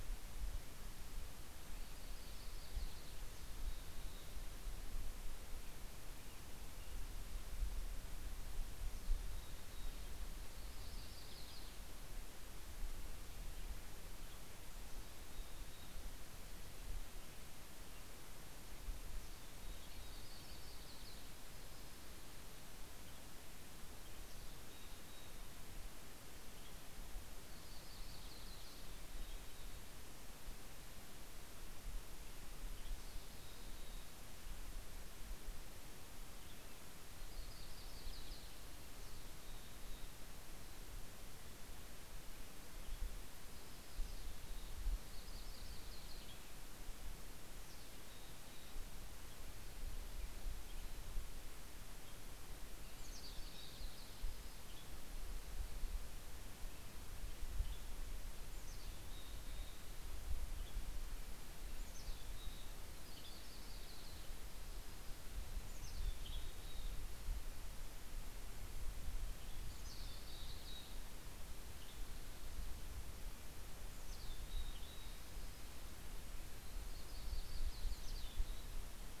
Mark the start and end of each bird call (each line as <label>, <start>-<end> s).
Yellow-rumped Warbler (Setophaga coronata), 1.2-3.8 s
Mountain Chickadee (Poecile gambeli), 8.5-10.2 s
Yellow-rumped Warbler (Setophaga coronata), 10.1-12.4 s
Mountain Chickadee (Poecile gambeli), 14.6-16.4 s
Mountain Chickadee (Poecile gambeli), 18.9-20.3 s
Yellow-rumped Warbler (Setophaga coronata), 19.7-22.3 s
Mountain Chickadee (Poecile gambeli), 24.0-26.0 s
Yellow-rumped Warbler (Setophaga coronata), 27.2-29.3 s
Mountain Chickadee (Poecile gambeli), 28.6-30.0 s
Mountain Chickadee (Poecile gambeli), 32.7-34.4 s
Yellow-rumped Warbler (Setophaga coronata), 36.5-39.1 s
Mountain Chickadee (Poecile gambeli), 38.7-40.4 s
Yellow-rumped Warbler (Setophaga coronata), 42.5-46.8 s
Mountain Chickadee (Poecile gambeli), 47.4-48.8 s
Mountain Chickadee (Poecile gambeli), 52.6-54.0 s
Yellow-rumped Warbler (Setophaga coronata), 53.2-54.8 s
Western Tanager (Piranga ludoviciana), 54.1-55.4 s
Western Tanager (Piranga ludoviciana), 57.1-58.2 s
Mountain Chickadee (Poecile gambeli), 58.4-60.0 s
Western Tanager (Piranga ludoviciana), 60.2-61.1 s
Mountain Chickadee (Poecile gambeli), 61.6-63.0 s
Western Tanager (Piranga ludoviciana), 62.6-63.5 s
Yellow-rumped Warbler (Setophaga coronata), 63.0-64.8 s
Mountain Chickadee (Poecile gambeli), 65.5-67.1 s
Western Tanager (Piranga ludoviciana), 66.1-66.8 s
Western Tanager (Piranga ludoviciana), 69.1-69.8 s
Yellow-rumped Warbler (Setophaga coronata), 69.5-71.5 s
Mountain Chickadee (Poecile gambeli), 69.6-70.9 s
Western Tanager (Piranga ludoviciana), 71.2-72.3 s
Mountain Chickadee (Poecile gambeli), 73.7-75.3 s
Western Tanager (Piranga ludoviciana), 74.7-75.8 s
Yellow-rumped Warbler (Setophaga coronata), 76.6-79.0 s
Mountain Chickadee (Poecile gambeli), 77.7-79.2 s
Western Tanager (Piranga ludoviciana), 78.0-78.7 s